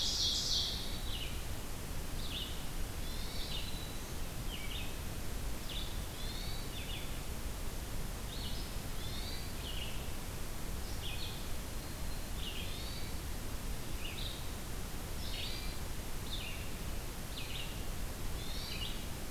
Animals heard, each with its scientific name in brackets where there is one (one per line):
Hermit Thrush (Catharus guttatus)
Red-eyed Vireo (Vireo olivaceus)
Ovenbird (Seiurus aurocapilla)